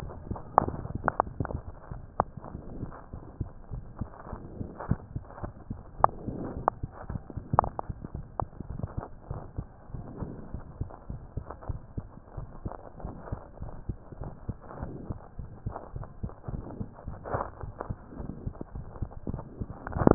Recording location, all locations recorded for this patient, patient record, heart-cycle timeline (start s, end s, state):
mitral valve (MV)
aortic valve (AV)+pulmonary valve (PV)+tricuspid valve (TV)+mitral valve (MV)
#Age: Child
#Sex: Female
#Height: 101.0 cm
#Weight: 18.7 kg
#Pregnancy status: False
#Murmur: Present
#Murmur locations: aortic valve (AV)+mitral valve (MV)+pulmonary valve (PV)+tricuspid valve (TV)
#Most audible location: pulmonary valve (PV)
#Systolic murmur timing: Early-systolic
#Systolic murmur shape: Plateau
#Systolic murmur grading: II/VI
#Systolic murmur pitch: Low
#Systolic murmur quality: Blowing
#Diastolic murmur timing: nan
#Diastolic murmur shape: nan
#Diastolic murmur grading: nan
#Diastolic murmur pitch: nan
#Diastolic murmur quality: nan
#Outcome: Abnormal
#Campaign: 2015 screening campaign
0.00	9.19	unannotated
9.19	9.29	diastole
9.29	9.37	S1
9.37	9.54	systole
9.54	9.68	S2
9.68	9.90	diastole
9.90	10.06	S1
10.06	10.20	systole
10.20	10.34	S2
10.34	10.52	diastole
10.52	10.64	S1
10.64	10.78	systole
10.78	10.90	S2
10.90	11.10	diastole
11.10	11.22	S1
11.22	11.34	systole
11.34	11.44	S2
11.44	11.62	diastole
11.62	11.80	S1
11.80	11.96	systole
11.96	12.10	S2
12.10	12.36	diastole
12.36	12.50	S1
12.50	12.64	systole
12.64	12.76	S2
12.76	13.00	diastole
13.00	13.14	S1
13.14	13.28	systole
13.28	13.42	S2
13.42	13.62	diastole
13.62	13.74	S1
13.74	13.86	systole
13.86	14.00	S2
14.00	14.20	diastole
14.20	14.34	S1
14.34	14.46	systole
14.46	14.56	S2
14.56	14.78	diastole
14.78	14.96	S1
14.96	15.08	systole
15.08	15.18	S2
15.18	15.38	diastole
15.38	15.50	S1
15.50	15.62	systole
15.62	15.74	S2
15.74	15.94	diastole
15.94	16.08	S1
16.08	16.22	systole
16.22	16.34	S2
16.34	16.49	diastole
16.49	16.64	S1
16.64	16.78	systole
16.78	16.90	S2
16.90	17.08	diastole
17.08	17.16	S1
17.16	20.14	unannotated